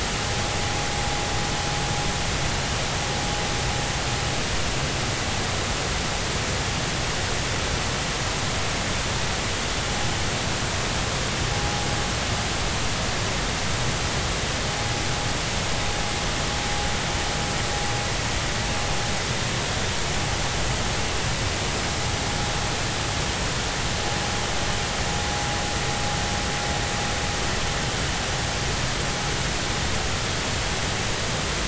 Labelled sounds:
11.6	11.8	vessel noise, 0.80 to 0.86 kHz

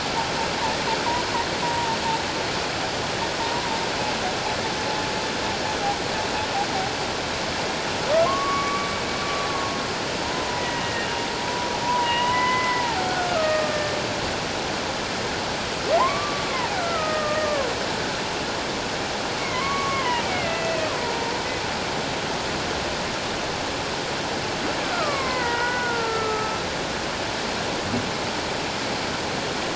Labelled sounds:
1.6	2.0	humpback whale, 0.84 to 1.0 kHz
8.3	8.9	humpback whale, 1.0 to 2.3 kHz
10.2	11.2	humpback whale, 0.91 to 2.8 kHz
11.8	13.0	humpback whale, 0.91 to 2.2 kHz
13.3	14.0	humpback whale, 1.2 to 2.5 kHz
15.9	17.7	humpback whale, 0.78 to 2.4 kHz
19.4	20.9	humpback whale, 0.91 to 2.9 kHz
24.8	26.6	humpback whale, 0.91 to 2.3 kHz

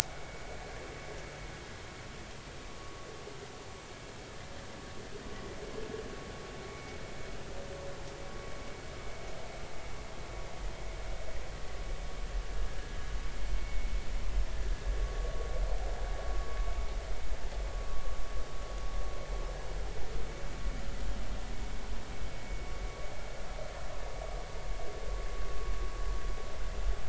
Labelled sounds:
2.8	3.1	vessel noise, 1.1 to 1.2 kHz
6.7	7.0	vessel noise, 2.1 to 2.3 kHz
13.6	13.9	vessel noise, 2.1 to 2.2 kHz

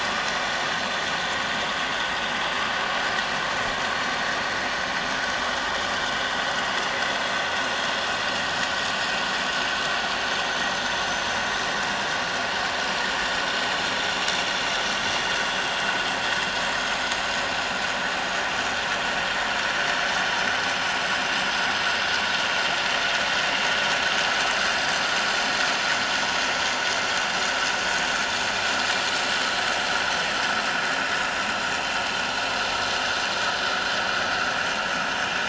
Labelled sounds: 10.8	11.4	vessel noise, 5.8 to 6.2 kHz
31.0	31.3	vessel noise, 3.7 to 3.9 kHz

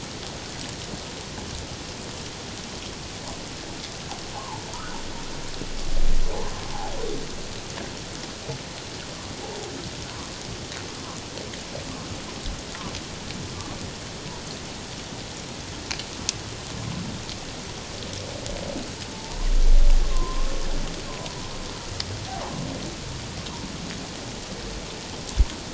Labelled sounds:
4.7	5.0	humpback whale, 1.2 to 1.6 kHz
19.1	19.4	humpback whale, 0.78 to 1.0 kHz
20.0	20.5	humpback whale, 0.91 to 1.1 kHz
21.1	21.4	humpback whale, 0.94 to 1.1 kHz

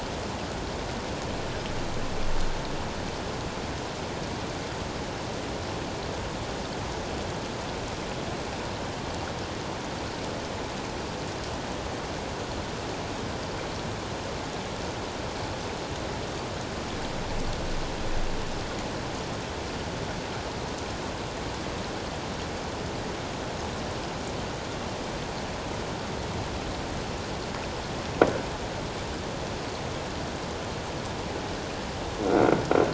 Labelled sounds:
32.3	32.6	croaking sound likely from a nearby submerged object, 1.3 to 1.5 kHz

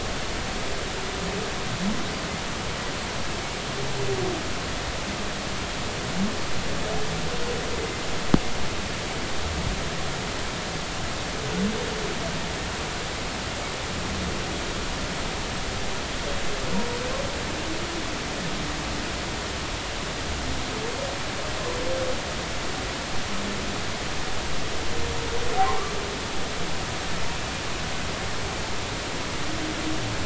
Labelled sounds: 25.6	25.9	humpback whale, 0.80 to 1.3 kHz

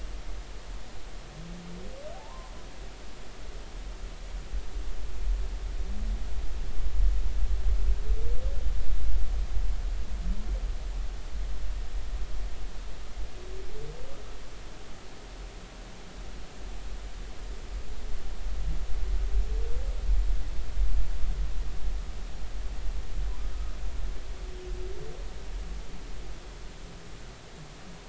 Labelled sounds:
2.1	2.5	humpback whale, 0.80 to 1.1 kHz
23.5	23.8	humpback whale, 1.2 to 1.3 kHz

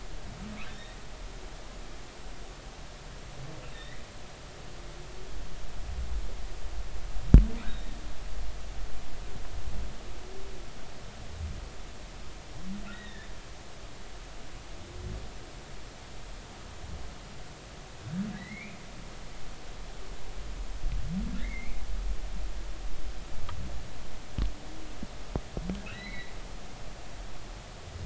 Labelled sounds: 0.7	1.0	humpback whale, 3.4 to 3.8 kHz
3.7	4.0	humpback whale, 1.8 to 2.0 kHz
7.6	7.9	humpback whale, 3.6 to 3.9 kHz
12.9	13.3	humpback whale, 1.7 to 3.9 kHz
18.4	18.8	humpback whale, 1.8 to 2.6 kHz
21.4	21.8	humpback whale, 1.6 to 2.5 kHz
25.9	26.3	humpback whale, 1.8 to 4.1 kHz

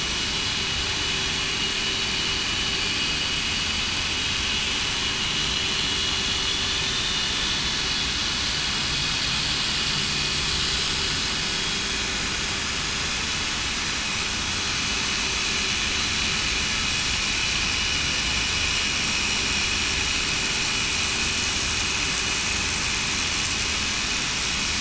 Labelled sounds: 6.7	7.6	vessel noise, 3.4 to 3.6 kHz

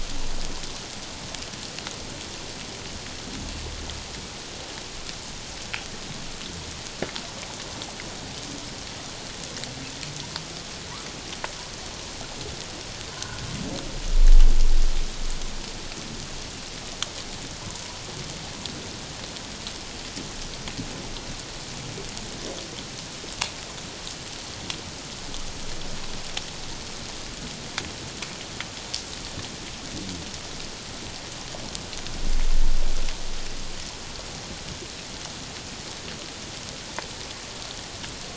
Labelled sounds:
13.1	13.4	humpback whale, 0.91 to 1.6 kHz

